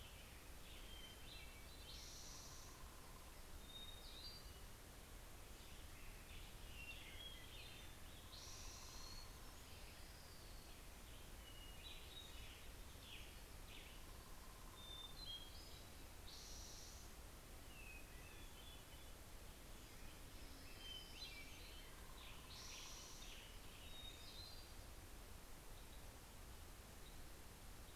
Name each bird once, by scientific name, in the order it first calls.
Setophaga occidentalis, Piranga ludoviciana, Catharus guttatus